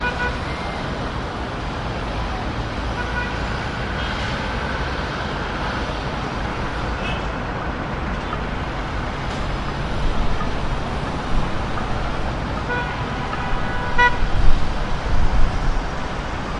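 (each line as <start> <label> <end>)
0.0 A car horn sounds. 0.5
2.8 A car horn honks repeatedly on a busy street. 3.3
3.9 A truck honks in the distance. 6.2
6.9 A motorcycle is honking in the distance. 7.4
12.3 Multiple vehicle horns honking simultaneously, with additional horns sounding in the background. 14.3
12.4 A car horn honks. 13.0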